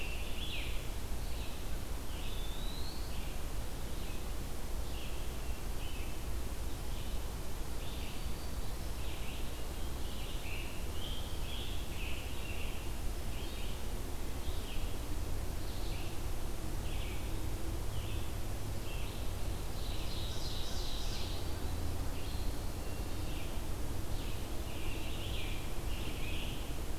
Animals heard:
Red-eyed Vireo (Vireo olivaceus), Eastern Wood-Pewee (Contopus virens), Black-throated Green Warbler (Setophaga virens), Scarlet Tanager (Piranga olivacea), Ovenbird (Seiurus aurocapilla)

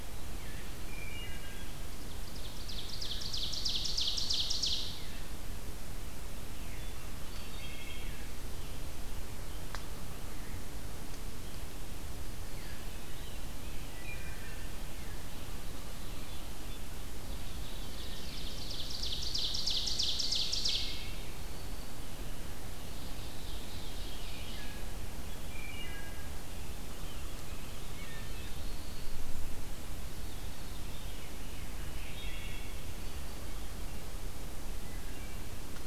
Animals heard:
Eastern Wood-Pewee (Contopus virens), Red-eyed Vireo (Vireo olivaceus), Black-throated Blue Warbler (Setophaga caerulescens), Ovenbird (Seiurus aurocapilla), Veery (Catharus fuscescens), Wood Thrush (Hylocichla mustelina)

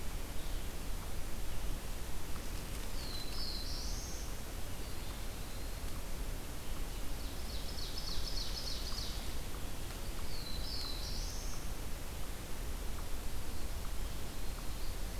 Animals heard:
Ovenbird (Seiurus aurocapilla), Black-throated Blue Warbler (Setophaga caerulescens)

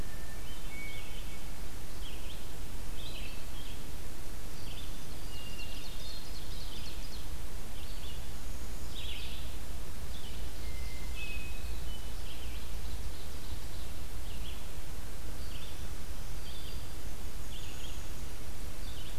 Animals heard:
Hermit Thrush (Catharus guttatus), Red-eyed Vireo (Vireo olivaceus), Black-capped Chickadee (Poecile atricapillus), Ovenbird (Seiurus aurocapilla)

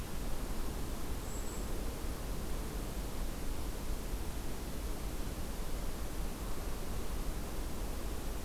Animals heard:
Golden-crowned Kinglet (Regulus satrapa)

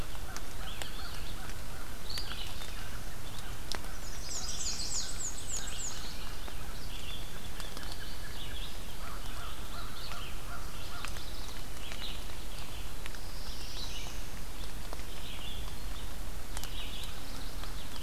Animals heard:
American Crow (Corvus brachyrhynchos), Red-eyed Vireo (Vireo olivaceus), Yellow-rumped Warbler (Setophaga coronata), Black-and-white Warbler (Mniotilta varia), American Robin (Turdus migratorius), Chestnut-sided Warbler (Setophaga pensylvanica), Black-throated Blue Warbler (Setophaga caerulescens)

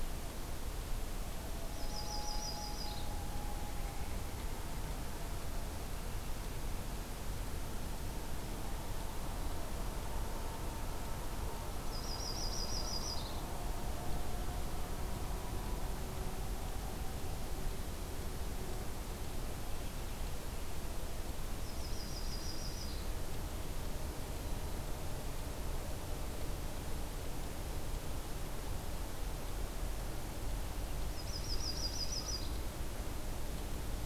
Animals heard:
Common Loon (Gavia immer), Yellow-rumped Warbler (Setophaga coronata), Mourning Dove (Zenaida macroura)

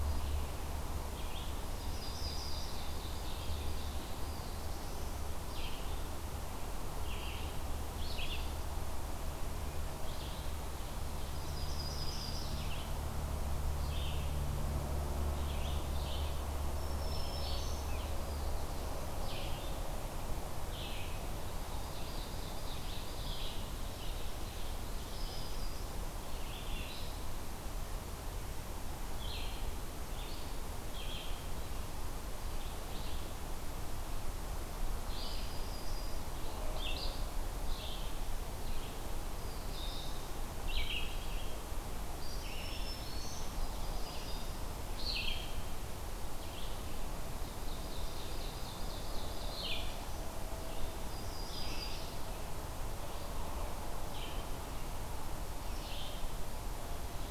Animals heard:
Ovenbird (Seiurus aurocapilla), Yellow-rumped Warbler (Setophaga coronata), Red-eyed Vireo (Vireo olivaceus), Black-throated Blue Warbler (Setophaga caerulescens), Black-throated Green Warbler (Setophaga virens)

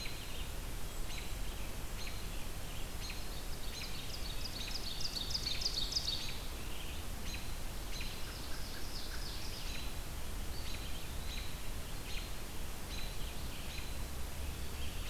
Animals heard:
Scarlet Tanager (Piranga olivacea), Ovenbird (Seiurus aurocapilla), American Robin (Turdus migratorius), Eastern Wood-Pewee (Contopus virens), Red-eyed Vireo (Vireo olivaceus)

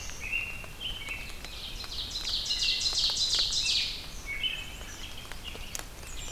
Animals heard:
Blackburnian Warbler (Setophaga fusca), Ovenbird (Seiurus aurocapilla), Black-capped Chickadee (Poecile atricapillus), American Robin (Turdus migratorius)

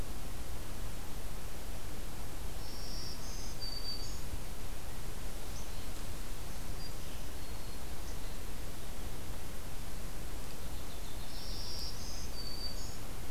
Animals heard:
Black-throated Green Warbler (Setophaga virens), Yellow-rumped Warbler (Setophaga coronata)

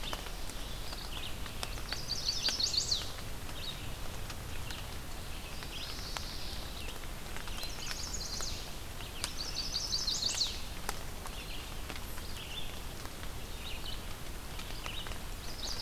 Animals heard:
Red-eyed Vireo (Vireo olivaceus), Chestnut-sided Warbler (Setophaga pensylvanica)

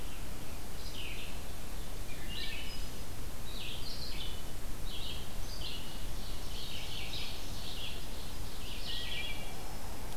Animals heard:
Wood Thrush (Hylocichla mustelina), Ovenbird (Seiurus aurocapilla), Red-eyed Vireo (Vireo olivaceus)

